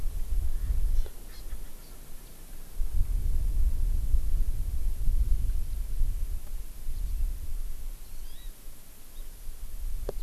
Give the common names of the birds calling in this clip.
Erckel's Francolin, Hawaii Amakihi